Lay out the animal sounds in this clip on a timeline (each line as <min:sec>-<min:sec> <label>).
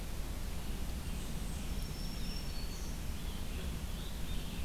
0:00.0-0:04.6 Red-eyed Vireo (Vireo olivaceus)
0:01.6-0:03.3 Black-throated Green Warbler (Setophaga virens)
0:02.8-0:04.6 Scarlet Tanager (Piranga olivacea)